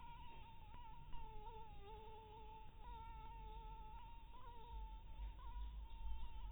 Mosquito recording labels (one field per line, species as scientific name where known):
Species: Anopheles harrisoni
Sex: female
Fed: blood-fed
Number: one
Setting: cup